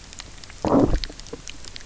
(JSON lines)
{"label": "biophony, low growl", "recorder": "SoundTrap 300"}